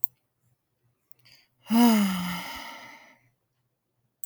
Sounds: Sigh